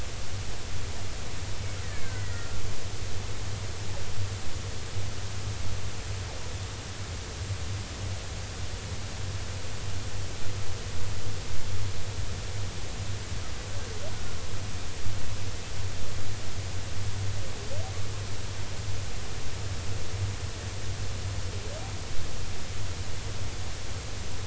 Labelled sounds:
2.1	2.5	killer whale, 1.8 to 2.0 kHz
2.3	2.6	killer whale, Bigg's (transient), 1.3 to 1.4 kHz

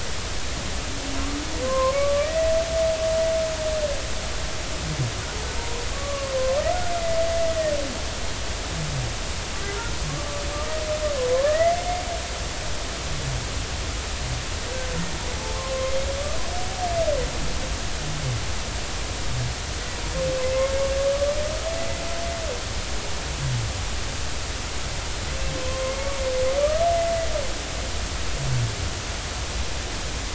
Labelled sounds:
1.6	2.5	humpback whale, 0.99 to 2.1 kHz
5.9	6.3	humpback whale, 1.0 to 1.2 kHz
11.3	11.7	humpback whale, 0.99 to 2.1 kHz
15.5	15.9	humpback whale, 1.0 to 1.1 kHz
21.7	22.0	humpback whale, 1.95 to 2.05 kHz
25.7	26.1	humpback whale, 0.99 to 2.3 kHz

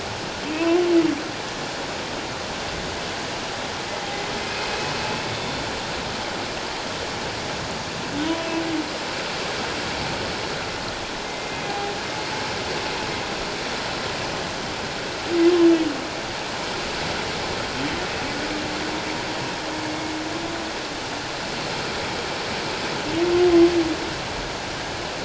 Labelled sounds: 0.5	0.8	humpback whale, 2.4 to 2.8 kHz
4.4	5.6	humpback whale, 2.4 to 3.6 kHz
11.2	11.9	humpback whale, 0.78 to 2.6 kHz

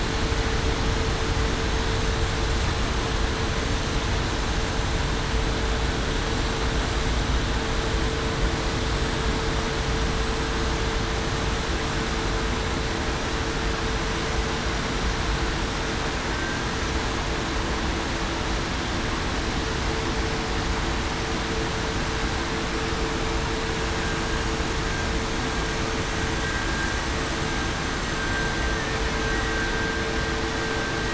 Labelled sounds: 16.3	16.6	vessel noise, 1.5 to 1.6 kHz

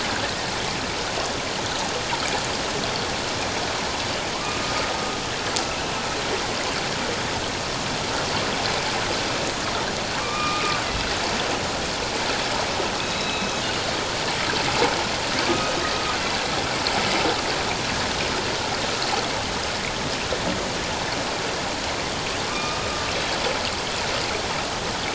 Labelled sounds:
4.3	4.6	killer whale, northern resident, A clan, AB subclan, H01 pod, 0.97 to 1.3 kHz
10.2	10.8	killer whale, northern resident, A clan, AB subclan, H01 pod, 1.0 to 2.6 kHz
13.0	13.5	killer whale, northern resident, A clan, AB subclan, H01 pod, 2.5 to 4.0 kHz
15.4	15.7	killer whale, northern resident, A clan, AB subclan, H01 pod, 1.1 to 1.3 kHz
22.5	22.9	killer whale, northern resident, A clan, AB subclan, H01 pod, 1.1 to 3.8 kHz

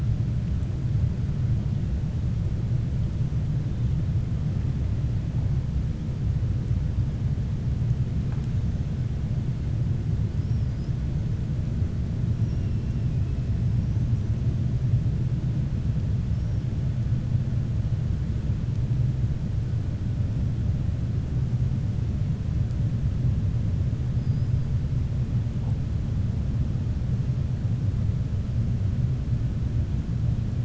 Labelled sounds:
10.3	10.9	killer whale, 4.8 to 5.9 kHz

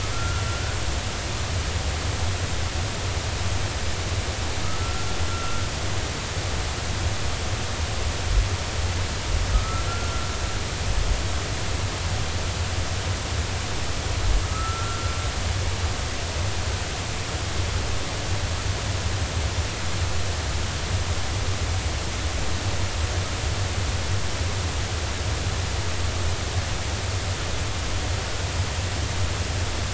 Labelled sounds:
0.1	0.4	humpback whale, 1.3 to 1.5 kHz
4.6	5.7	humpback whale, 1.2 to 1.5 kHz
9.5	10.3	humpback whale, 1.2 to 1.4 kHz
14.5	15.1	humpback whale, 1.2 to 1.5 kHz

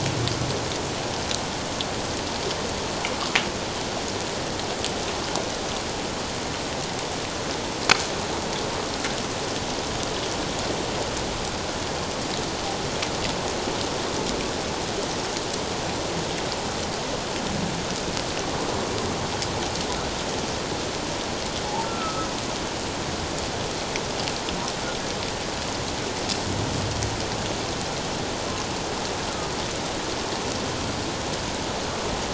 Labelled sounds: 21.6	22.3	humpback whale, 0.78 to 1.4 kHz

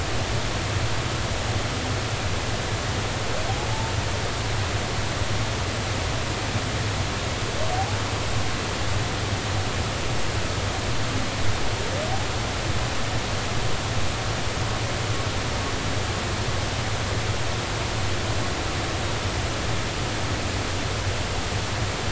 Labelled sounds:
7.7	8.0	humpback whale, 0.80 to 0.90 kHz

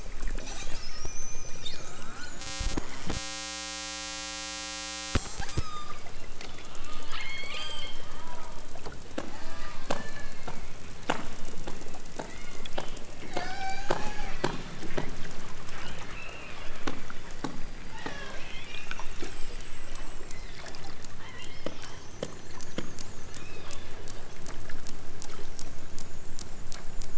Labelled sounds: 5.5	6.6	killer whale, southern Alaska resident, 0.83 to 8.0 kHz
7.0	8.0	killer whale, southern Alaska resident, 0.51 to 5.1 kHz
9.3	10.6	killer whale, southern Alaska resident, 0.51 to 5.2 kHz
11.2	12.7	killer whale, southern Alaska resident, 1.1 to 5.8 kHz
13.3	14.0	killer whale, southern Alaska resident, 0.46 to 7.9 kHz
15.8	16.6	killer whale, southern Alaska resident, 1.0 to 4.6 kHz
17.9	19.1	killer whale, southern Alaska resident, 0.60 to 6.8 kHz
20.2	22.0	killer whale, southern Alaska resident, 1.1 to 5.7 kHz
23.3	23.7	killer whale, southern Alaska resident, 1.4 to 5.9 kHz

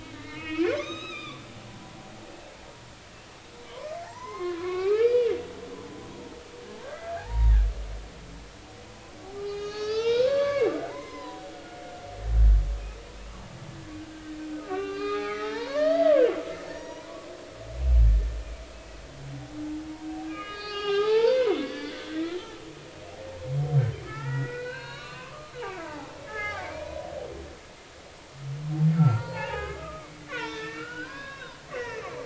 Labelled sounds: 0.0	2.0	humpback whale, 0.96 to 6.5 kHz
4.0	5.3	humpback whale, 0.83 to 6.4 kHz
6.1	7.5	humpback whale, 0.80 to 1.9 kHz
9.4	11.8	humpback whale, 0.86 to 6.7 kHz
14.6	16.2	humpback whale, 0.80 to 5.0 kHz
16.7	17.3	humpback whale, 0.90 to 6.8 kHz
18.7	19.0	humpback whale, 2.5 to 2.7 kHz
20.2	22.6	humpback whale, 0.80 to 5.6 kHz
24.0	25.5	humpback whale, 0.83 to 4.5 kHz
25.8	27.1	humpback whale, 0.80 to 2.5 kHz
29.0	32.1	humpback whale, 0.80 to 5.1 kHz

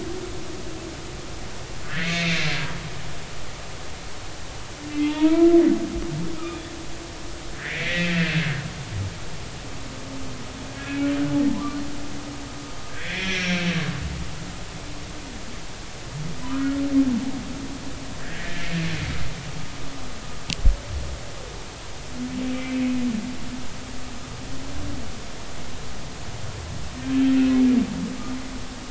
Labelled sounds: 1.8	2.5	humpback whale, 1.3 to 4.3 kHz
5.0	5.6	humpback whale, 0.86 to 3.5 kHz
6.4	6.7	humpback whale, 1.1 to 3.6 kHz
7.6	8.2	humpback whale, 1.5 to 2.5 kHz
12.9	13.8	humpback whale, 1.4 to 6.1 kHz
16.5	16.8	humpback whale, 1.2 to 1.5 kHz
18.2	18.7	humpback whale, 1.5 to 1.9 kHz
22.5	22.8	humpback whale, 2.2 to 2.4 kHz

